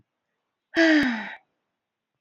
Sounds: Sigh